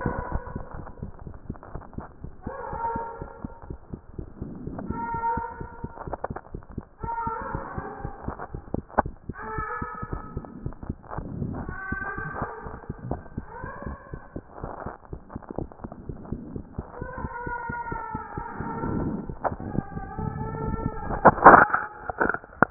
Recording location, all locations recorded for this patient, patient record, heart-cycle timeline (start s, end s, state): mitral valve (MV)
aortic valve (AV)+pulmonary valve (PV)+tricuspid valve (TV)+mitral valve (MV)
#Age: Child
#Sex: Male
#Height: 131.0 cm
#Weight: 24.9 kg
#Pregnancy status: False
#Murmur: Absent
#Murmur locations: nan
#Most audible location: nan
#Systolic murmur timing: nan
#Systolic murmur shape: nan
#Systolic murmur grading: nan
#Systolic murmur pitch: nan
#Systolic murmur quality: nan
#Diastolic murmur timing: nan
#Diastolic murmur shape: nan
#Diastolic murmur grading: nan
#Diastolic murmur pitch: nan
#Diastolic murmur quality: nan
#Outcome: Abnormal
#Campaign: 2014 screening campaign
0.00	0.28	unannotated
0.28	0.38	S1
0.38	0.54	systole
0.54	0.62	S2
0.62	0.76	diastole
0.76	0.86	S1
0.86	1.02	systole
1.02	1.10	S2
1.10	1.26	diastole
1.26	1.35	S1
1.35	1.48	systole
1.48	1.56	S2
1.56	1.73	diastole
1.73	1.79	S1
1.79	1.94	systole
1.94	2.02	S2
2.02	2.23	diastole
2.23	2.31	S1
2.31	2.45	systole
2.45	2.52	S2
2.52	2.73	diastole
2.73	22.70	unannotated